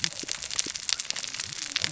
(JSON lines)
{"label": "biophony, cascading saw", "recorder": "SoundTrap 600 or HydroMoth"}